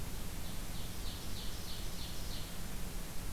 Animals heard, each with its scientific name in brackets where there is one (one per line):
Ovenbird (Seiurus aurocapilla)